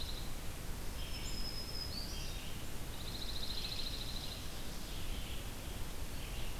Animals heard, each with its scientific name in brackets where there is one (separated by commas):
Dark-eyed Junco (Junco hyemalis), Red-eyed Vireo (Vireo olivaceus), Black-throated Green Warbler (Setophaga virens)